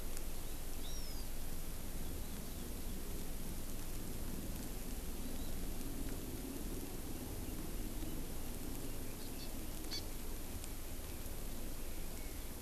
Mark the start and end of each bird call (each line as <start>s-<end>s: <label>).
0.8s-1.3s: Hawaii Amakihi (Chlorodrepanis virens)
5.1s-5.5s: Hawaii Amakihi (Chlorodrepanis virens)
9.2s-9.5s: Hawaii Amakihi (Chlorodrepanis virens)
9.9s-10.1s: Hawaii Amakihi (Chlorodrepanis virens)
10.6s-12.6s: Red-billed Leiothrix (Leiothrix lutea)